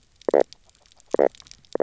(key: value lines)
label: biophony, knock croak
recorder: SoundTrap 300

label: biophony, grazing
recorder: SoundTrap 300